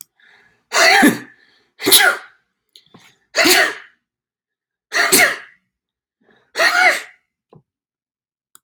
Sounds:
Sneeze